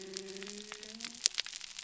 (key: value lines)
label: biophony
recorder: SoundTrap 300